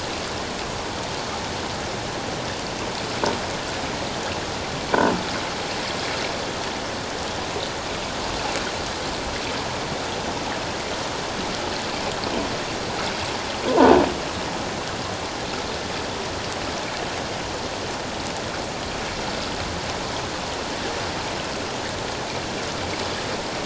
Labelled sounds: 13.7	13.9	croaking sound likely from a nearby submerged object, 0.88 to 1.1 kHz

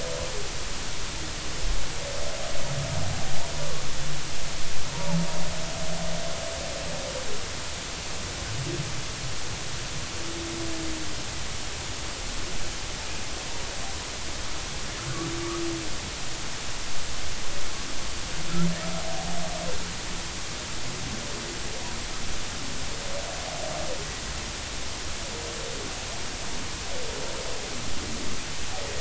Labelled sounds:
4.9	5.2	humpback whale, 0.80 to 0.99 kHz

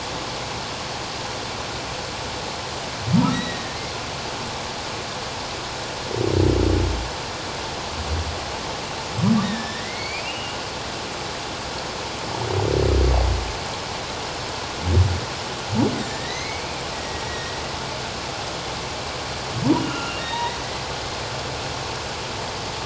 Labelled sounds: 3.3	3.8	humpback whale, 1.8 to 4.0 kHz
9.4	10.6	humpback whale, 1.6 to 4.7 kHz
15.9	17.6	humpback whale, 1.7 to 2.5 kHz
19.8	20.9	humpback whale, 1.2 to 3.9 kHz

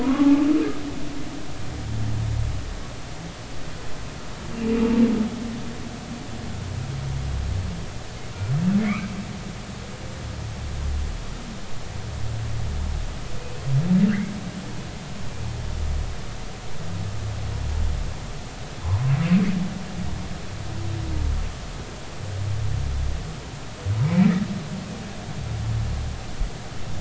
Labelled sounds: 0.0	0.5	humpback whale, 0.80 to 1.2 kHz
8.8	9.1	humpback whale, 2.0 to 2.7 kHz
13.4	13.6	humpback whale, 2.4 to 2.6 kHz
24.0	24.3	humpback whale, 2.2 to 2.4 kHz

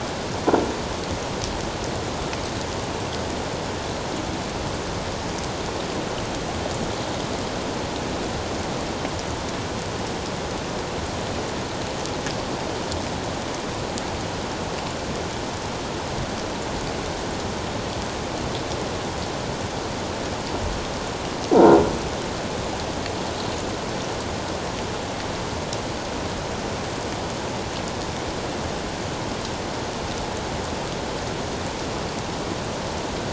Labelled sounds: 21.6	21.8	croaking sound likely from a nearby submerged object, 1.3 to 1.5 kHz

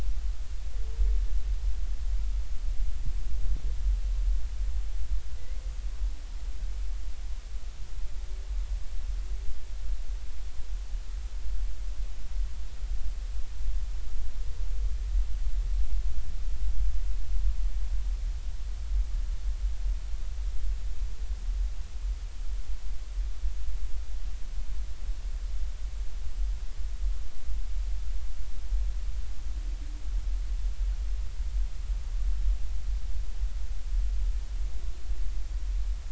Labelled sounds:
5.4	5.6	humpback whale, 1.9 to 2.2 kHz

